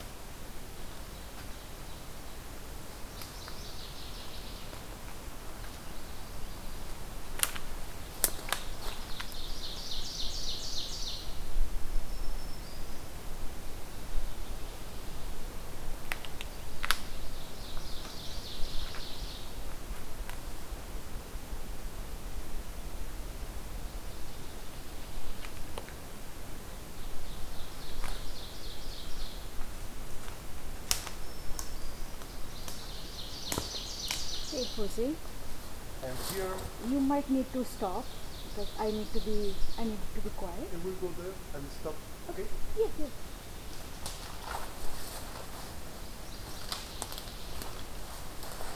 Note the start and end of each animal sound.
2.9s-4.7s: Northern Waterthrush (Parkesia noveboracensis)
8.7s-11.3s: Ovenbird (Seiurus aurocapilla)
11.7s-13.2s: Black-throated Green Warbler (Setophaga virens)
16.8s-19.5s: Ovenbird (Seiurus aurocapilla)
23.7s-25.6s: Northern Waterthrush (Parkesia noveboracensis)
27.0s-29.5s: Ovenbird (Seiurus aurocapilla)
30.9s-32.3s: Black-throated Green Warbler (Setophaga virens)
32.4s-34.9s: Ovenbird (Seiurus aurocapilla)
37.5s-39.9s: Ovenbird (Seiurus aurocapilla)
46.0s-47.7s: Northern Waterthrush (Parkesia noveboracensis)

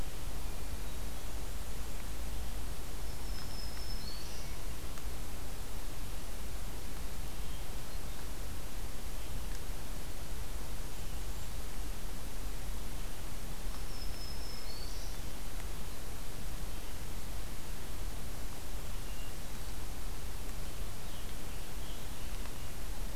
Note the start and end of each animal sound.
3.0s-4.6s: Black-throated Green Warbler (Setophaga virens)
7.2s-8.3s: Hermit Thrush (Catharus guttatus)
13.8s-15.2s: Black-throated Green Warbler (Setophaga virens)
20.5s-22.7s: American Robin (Turdus migratorius)

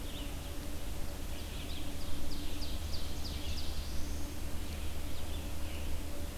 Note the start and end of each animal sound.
0.0s-6.4s: Red-eyed Vireo (Vireo olivaceus)
1.0s-4.0s: Ovenbird (Seiurus aurocapilla)
3.0s-4.5s: Black-throated Blue Warbler (Setophaga caerulescens)

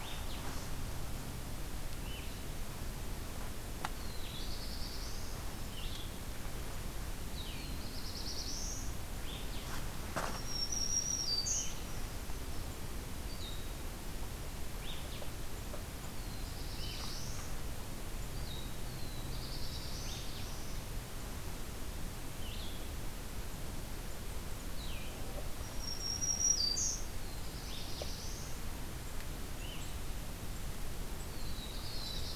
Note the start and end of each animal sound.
0.0s-18.7s: Blue-headed Vireo (Vireo solitarius)
3.9s-5.5s: Black-throated Blue Warbler (Setophaga caerulescens)
7.4s-8.9s: Black-throated Blue Warbler (Setophaga caerulescens)
10.3s-11.9s: Black-throated Green Warbler (Setophaga virens)
16.1s-17.7s: Black-throated Blue Warbler (Setophaga caerulescens)
18.8s-20.9s: Black-throated Blue Warbler (Setophaga caerulescens)
22.1s-32.4s: Blue-headed Vireo (Vireo solitarius)
25.2s-27.1s: Black-throated Green Warbler (Setophaga virens)
27.1s-28.8s: Black-throated Blue Warbler (Setophaga caerulescens)
31.2s-32.4s: Black-throated Blue Warbler (Setophaga caerulescens)

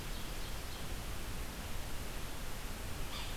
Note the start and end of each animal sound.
0.0s-1.1s: Ovenbird (Seiurus aurocapilla)
3.1s-3.4s: Yellow-bellied Sapsucker (Sphyrapicus varius)

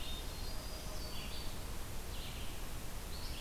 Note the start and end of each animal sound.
0.0s-0.7s: Hermit Thrush (Catharus guttatus)
0.0s-3.4s: Red-eyed Vireo (Vireo olivaceus)
0.3s-1.7s: Black-throated Green Warbler (Setophaga virens)

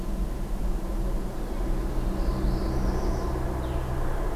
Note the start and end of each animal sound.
0.0s-4.4s: Red-eyed Vireo (Vireo olivaceus)
1.8s-3.4s: Northern Parula (Setophaga americana)

